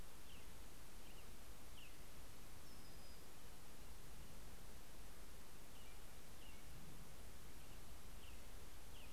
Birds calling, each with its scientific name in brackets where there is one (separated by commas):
Brown-headed Cowbird (Molothrus ater), American Robin (Turdus migratorius)